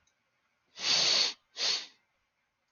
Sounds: Sniff